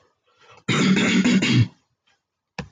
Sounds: Throat clearing